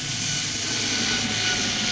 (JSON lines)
{"label": "anthrophony, boat engine", "recorder": "SoundTrap 500"}